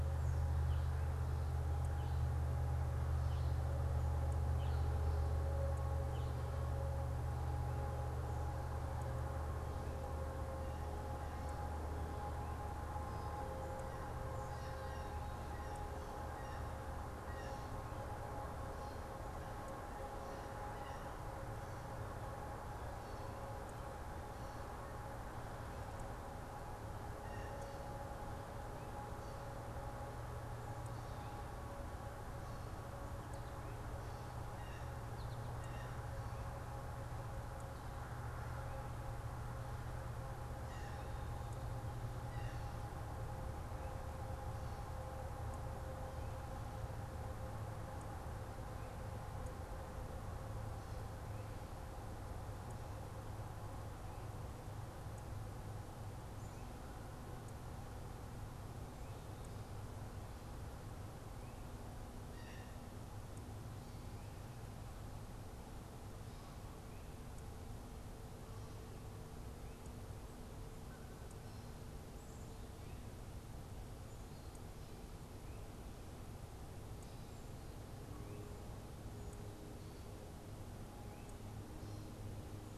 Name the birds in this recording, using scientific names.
unidentified bird, Cyanocitta cristata, Spinus tristis